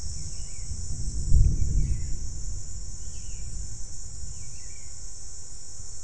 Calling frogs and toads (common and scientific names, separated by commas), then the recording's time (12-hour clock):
none
5:30pm